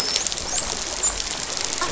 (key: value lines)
label: biophony, dolphin
recorder: SoundTrap 500